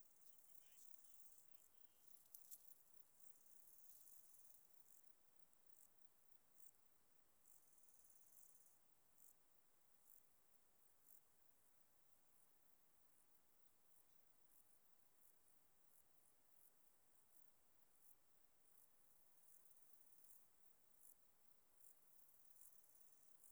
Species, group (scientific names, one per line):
Chorthippus biguttulus
Orthoptera